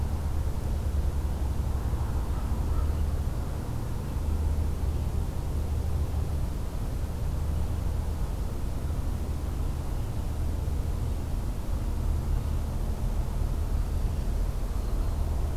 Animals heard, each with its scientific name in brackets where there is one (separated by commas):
Black-throated Green Warbler (Setophaga virens)